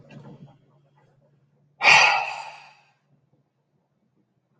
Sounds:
Sigh